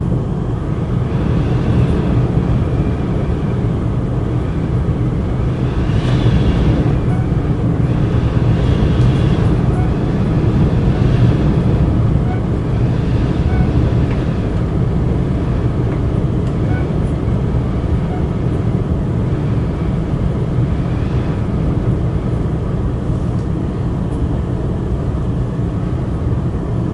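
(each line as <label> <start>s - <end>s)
Wind is blowing. 0.0s - 26.9s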